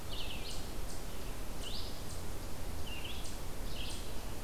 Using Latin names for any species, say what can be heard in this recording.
Vireo olivaceus